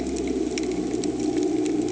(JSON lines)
{"label": "anthrophony, boat engine", "recorder": "HydroMoth"}